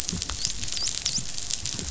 {"label": "biophony, dolphin", "recorder": "SoundTrap 500"}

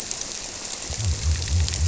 {"label": "biophony", "recorder": "SoundTrap 300"}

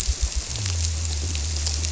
{"label": "biophony", "recorder": "SoundTrap 300"}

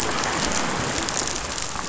{"label": "biophony", "recorder": "SoundTrap 500"}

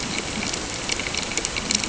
{"label": "ambient", "recorder": "HydroMoth"}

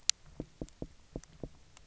{"label": "biophony, knock", "recorder": "SoundTrap 300"}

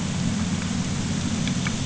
{"label": "anthrophony, boat engine", "recorder": "HydroMoth"}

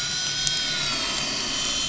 {"label": "anthrophony, boat engine", "recorder": "SoundTrap 500"}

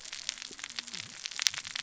{"label": "biophony, cascading saw", "recorder": "SoundTrap 600 or HydroMoth"}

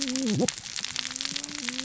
{"label": "biophony, cascading saw", "recorder": "SoundTrap 600 or HydroMoth"}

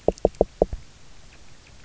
{"label": "biophony, knock", "recorder": "SoundTrap 300"}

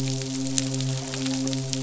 {"label": "biophony, midshipman", "recorder": "SoundTrap 500"}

